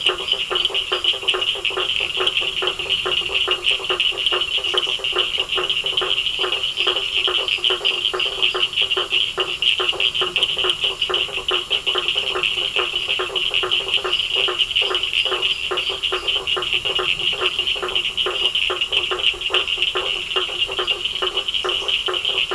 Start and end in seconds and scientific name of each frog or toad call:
0.0	1.2	Dendropsophus minutus
0.0	22.5	Boana faber
0.0	22.5	Sphaenorhynchus surdus
1.8	18.1	Elachistocleis bicolor
6.3	8.8	Dendropsophus minutus
14.1	16.5	Dendropsophus minutus
19.2	22.5	Elachistocleis bicolor